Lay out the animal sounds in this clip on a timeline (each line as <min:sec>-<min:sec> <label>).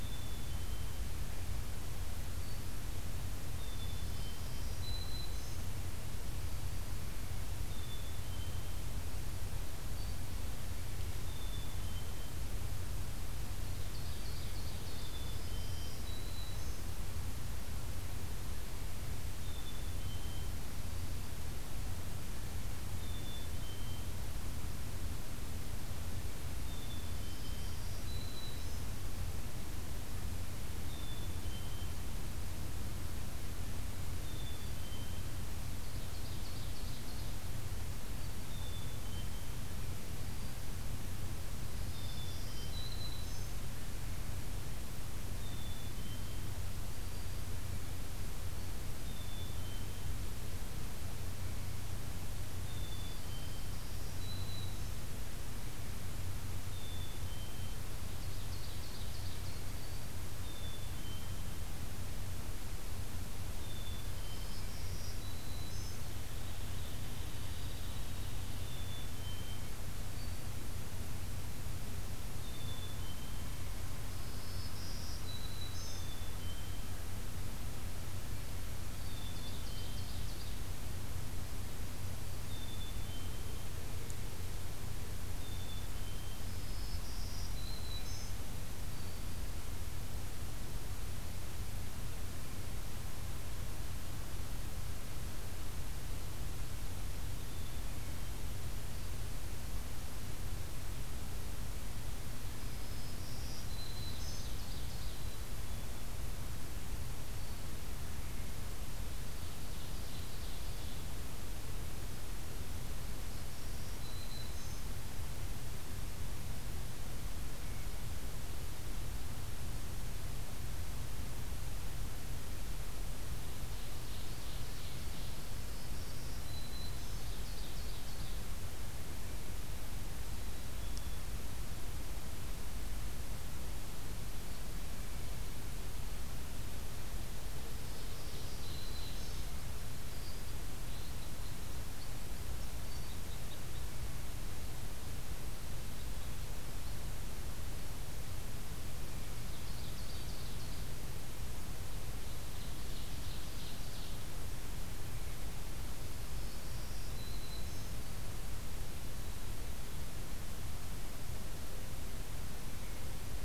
0:00.0-0:01.1 Black-capped Chickadee (Poecile atricapillus)
0:03.4-0:04.3 Black-capped Chickadee (Poecile atricapillus)
0:03.9-0:05.6 Black-throated Green Warbler (Setophaga virens)
0:07.7-0:08.7 Black-capped Chickadee (Poecile atricapillus)
0:11.2-0:12.3 Black-capped Chickadee (Poecile atricapillus)
0:13.7-0:15.0 Ovenbird (Seiurus aurocapilla)
0:15.0-0:16.1 Black-capped Chickadee (Poecile atricapillus)
0:15.1-0:16.9 Black-throated Green Warbler (Setophaga virens)
0:19.4-0:20.5 Black-capped Chickadee (Poecile atricapillus)
0:22.9-0:24.3 Black-capped Chickadee (Poecile atricapillus)
0:26.6-0:27.8 Black-capped Chickadee (Poecile atricapillus)
0:27.0-0:28.8 Black-throated Green Warbler (Setophaga virens)
0:30.8-0:31.9 Black-capped Chickadee (Poecile atricapillus)
0:34.2-0:35.4 Black-capped Chickadee (Poecile atricapillus)
0:35.7-0:37.3 Ovenbird (Seiurus aurocapilla)
0:38.4-0:39.5 Black-capped Chickadee (Poecile atricapillus)
0:41.7-0:43.6 Black-throated Green Warbler (Setophaga virens)
0:41.7-0:43.0 Black-capped Chickadee (Poecile atricapillus)
0:45.4-0:46.5 Black-capped Chickadee (Poecile atricapillus)
0:48.9-0:50.0 Black-capped Chickadee (Poecile atricapillus)
0:52.6-0:53.3 Black-capped Chickadee (Poecile atricapillus)
0:53.0-0:55.1 Black-throated Green Warbler (Setophaga virens)
0:56.6-0:57.8 Black-capped Chickadee (Poecile atricapillus)
0:58.0-0:59.6 Ovenbird (Seiurus aurocapilla)
0:59.5-1:00.3 Black-throated Green Warbler (Setophaga virens)
1:00.3-1:01.5 Black-capped Chickadee (Poecile atricapillus)
1:03.5-1:04.6 Black-capped Chickadee (Poecile atricapillus)
1:04.1-1:06.0 Black-throated Green Warbler (Setophaga virens)
1:05.8-1:08.6 Hairy Woodpecker (Dryobates villosus)
1:08.6-1:09.7 Black-capped Chickadee (Poecile atricapillus)
1:12.4-1:13.6 Black-capped Chickadee (Poecile atricapillus)
1:14.1-1:16.0 Black-throated Green Warbler (Setophaga virens)
1:15.9-1:16.9 Black-capped Chickadee (Poecile atricapillus)
1:18.9-1:20.6 Ovenbird (Seiurus aurocapilla)
1:19.0-1:20.1 Black-capped Chickadee (Poecile atricapillus)
1:22.4-1:23.6 Black-capped Chickadee (Poecile atricapillus)
1:25.3-1:26.4 Black-capped Chickadee (Poecile atricapillus)
1:26.5-1:28.3 Black-throated Green Warbler (Setophaga virens)
1:28.9-1:29.4 Black-throated Green Warbler (Setophaga virens)
1:37.3-1:38.4 Black-capped Chickadee (Poecile atricapillus)
1:42.7-1:44.5 Black-throated Green Warbler (Setophaga virens)
1:44.0-1:45.2 Ovenbird (Seiurus aurocapilla)
1:45.0-1:46.1 Black-capped Chickadee (Poecile atricapillus)
1:49.3-1:51.1 Ovenbird (Seiurus aurocapilla)
1:53.1-1:54.8 Black-throated Green Warbler (Setophaga virens)
2:03.7-2:05.4 Ovenbird (Seiurus aurocapilla)
2:05.5-2:07.2 Black-throated Green Warbler (Setophaga virens)
2:06.8-2:08.3 Ovenbird (Seiurus aurocapilla)
2:10.2-2:11.2 Black-capped Chickadee (Poecile atricapillus)
2:17.7-2:19.5 Black-throated Green Warbler (Setophaga virens)
2:17.8-2:19.5 Ovenbird (Seiurus aurocapilla)
2:20.8-2:24.0 Red Crossbill (Loxia curvirostra)
2:29.2-2:30.9 Ovenbird (Seiurus aurocapilla)
2:32.2-2:34.3 Ovenbird (Seiurus aurocapilla)
2:36.1-2:38.0 Black-throated Green Warbler (Setophaga virens)